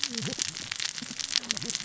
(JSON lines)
{"label": "biophony, cascading saw", "recorder": "SoundTrap 600 or HydroMoth"}